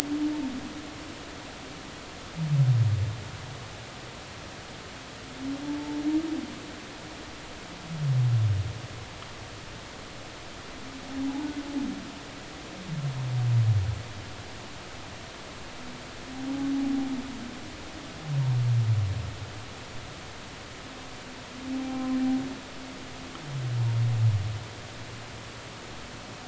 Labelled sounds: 5.6	6.0	humpback whale, 0.83 to 0.93 kHz
11.2	11.5	humpback whale, 0.80 to 0.99 kHz
21.7	22.2	humpback whale, 0.80 to 0.83 kHz

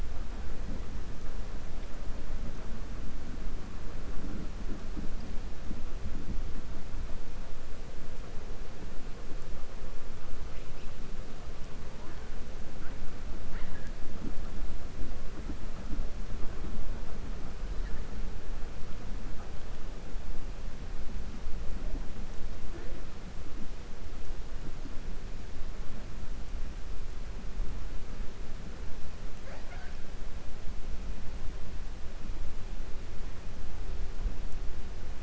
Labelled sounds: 29.3	30.0	killer whale, 0.54 to 4.8 kHz

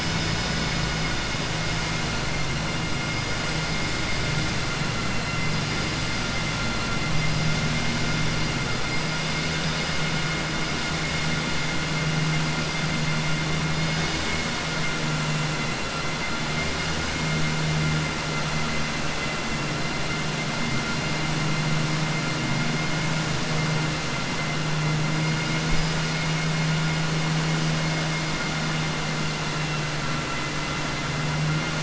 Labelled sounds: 5.0	5.5	vessel noise, 1.4 to 2.8 kHz

